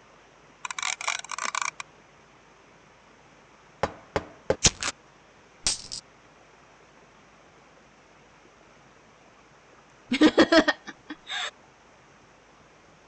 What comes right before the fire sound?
knock